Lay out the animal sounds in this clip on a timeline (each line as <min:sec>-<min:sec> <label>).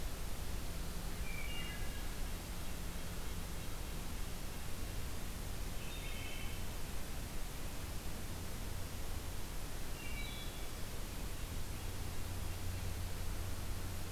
0:01.2-0:02.1 Wood Thrush (Hylocichla mustelina)
0:02.4-0:04.1 Red-breasted Nuthatch (Sitta canadensis)
0:05.7-0:06.7 Wood Thrush (Hylocichla mustelina)
0:09.9-0:10.9 Wood Thrush (Hylocichla mustelina)